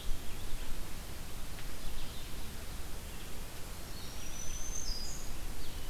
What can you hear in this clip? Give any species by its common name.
Blue-headed Vireo, Black-throated Green Warbler